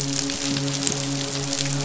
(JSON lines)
{"label": "biophony, midshipman", "recorder": "SoundTrap 500"}